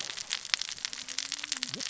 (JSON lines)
{"label": "biophony, cascading saw", "recorder": "SoundTrap 600 or HydroMoth"}